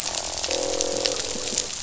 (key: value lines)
label: biophony, croak
recorder: SoundTrap 500